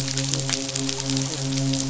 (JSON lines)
{"label": "biophony, midshipman", "recorder": "SoundTrap 500"}